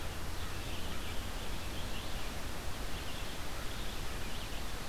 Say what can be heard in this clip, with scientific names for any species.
Vireo olivaceus, Corvus brachyrhynchos